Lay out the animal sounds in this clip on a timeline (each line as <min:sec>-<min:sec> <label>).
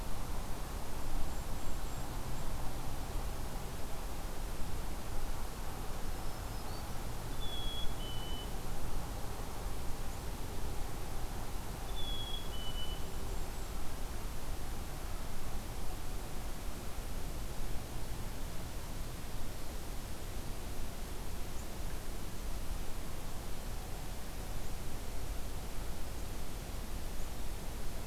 0:00.9-0:02.3 Golden-crowned Kinglet (Regulus satrapa)
0:05.9-0:07.0 Black-throated Green Warbler (Setophaga virens)
0:07.3-0:08.7 Black-capped Chickadee (Poecile atricapillus)
0:11.9-0:13.1 Black-capped Chickadee (Poecile atricapillus)
0:12.8-0:13.9 Golden-crowned Kinglet (Regulus satrapa)